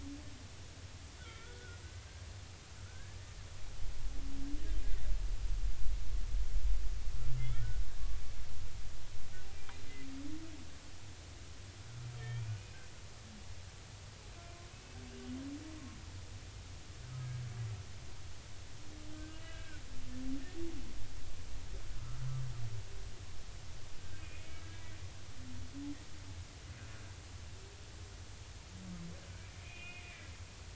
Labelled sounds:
1.2	1.8	humpback whale, 1.3 to 2.4 kHz
2.9	3.2	humpback whale, 1.3 to 1.8 kHz
7.4	7.8	humpback whale, 1.3 to 2.3 kHz
12.1	12.6	humpback whale, 2.2 to 3.2 kHz
14.7	15.0	humpback whale, 2.5 to 2.7 kHz
19.1	19.8	humpback whale, 1.4 to 3.0 kHz
24.2	24.8	humpback whale, 1.6 to 2.6 kHz
29.6	30.0	humpback whale, 2.0 to 2.9 kHz

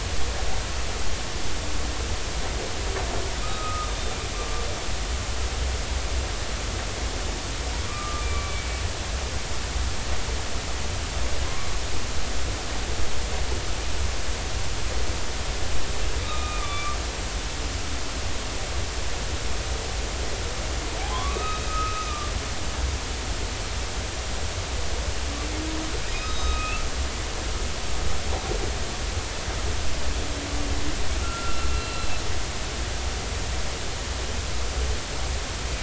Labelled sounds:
3.4	4.2	humpback whale, 1.2 to 3.7 kHz
8.2	9.3	humpback whale, 1.1 to 2.4 kHz
16.2	17.0	humpback whale, 1.1 to 3.9 kHz
21.1	22.3	humpback whale, 0.96 to 3.8 kHz
26.2	26.9	humpback whale, 1.2 to 6.3 kHz
31.2	32.1	humpback whale, 1.3 to 4.1 kHz

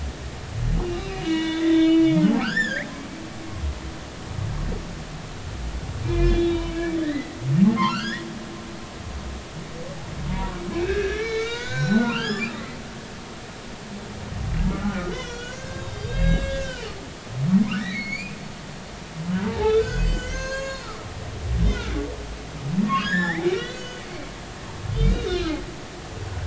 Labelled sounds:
0.8	2.9	humpback whale, 0.93 to 7.3 kHz
6.0	7.4	humpback whale, 1.7 to 3.8 kHz
7.8	8.3	humpback whale, 1.2 to 4.3 kHz
10.3	12.8	humpback whale, 0.86 to 7.3 kHz
14.7	16.6	humpback whale, 1.1 to 7.1 kHz
17.8	18.4	humpback whale, 1.7 to 5.0 kHz
19.4	20.9	humpback whale, 0.80 to 7.6 kHz
21.3	22.0	humpback whale, 2.2 to 7.1 kHz
22.8	24.3	humpback whale, 0.80 to 7.2 kHz
24.9	25.6	humpback whale, 1.2 to 4.4 kHz

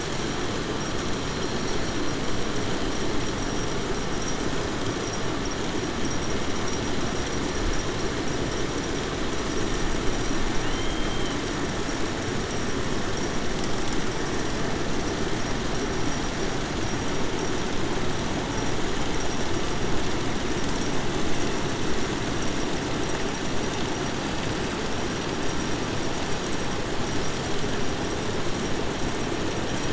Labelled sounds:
10.5	11.4	killer whale, 1.9 to 3.3 kHz

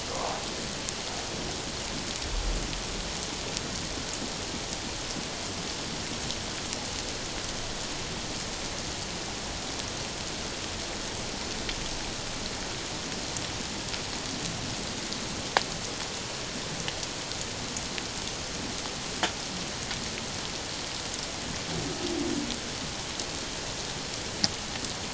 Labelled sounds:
0.1	0.4	humpback whale, 0.78 to 1.2 kHz

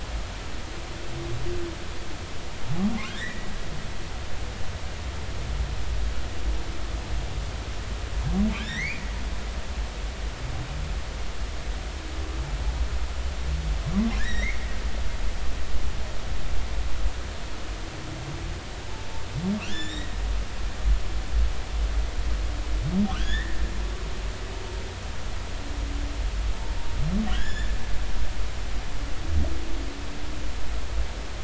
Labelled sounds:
3.0	3.5	humpback whale, 1.2 to 2.0 kHz
8.6	9.0	humpback whale, 1.5 to 2.5 kHz
14.2	14.6	humpback whale, 1.6 to 3.9 kHz
19.7	20.2	humpback whale, 1.6 to 7.1 kHz
23.1	23.6	humpback whale, 1.0 to 3.8 kHz
27.3	27.7	humpback whale, 1.5 to 3.6 kHz

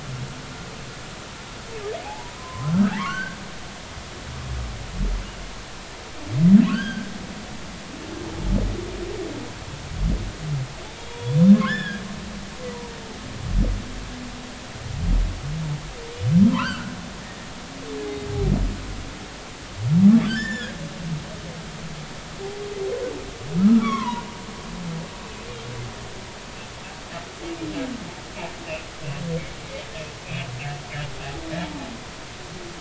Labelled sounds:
2.0	3.4	humpback whale, 0.80 to 4.6 kHz
6.7	7.1	humpback whale, 1.2 to 5.0 kHz
11.0	12.0	humpback whale, 0.90 to 3.6 kHz
16.5	17.5	humpback whale, 0.86 to 3.2 kHz
20.3	20.8	humpback whale, 1.4 to 7.3 kHz
23.6	24.3	humpback whale, 0.90 to 3.5 kHz
30.2	30.5	humpback whale, 2.3 to 2.7 kHz

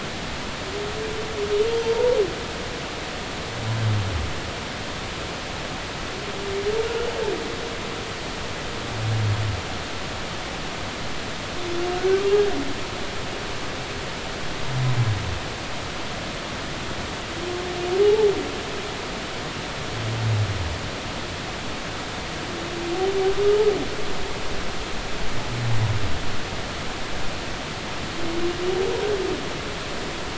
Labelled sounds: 1.7	2.2	humpback whale, 0.86 to 3.3 kHz
18.0	18.3	humpback whale, 0.80 to 0.96 kHz

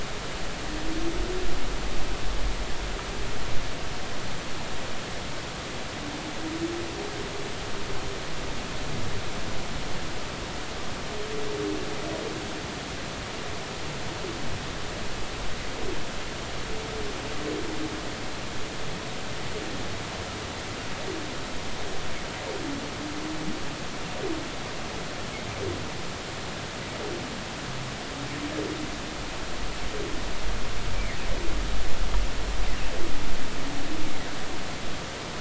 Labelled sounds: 31.0	31.2	humpback whale, 1.8 to 2.4 kHz

